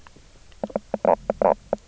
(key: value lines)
label: biophony, knock croak
recorder: SoundTrap 300